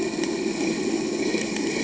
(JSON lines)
{"label": "anthrophony, boat engine", "recorder": "HydroMoth"}